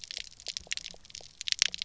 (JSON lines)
{"label": "biophony, pulse", "recorder": "SoundTrap 300"}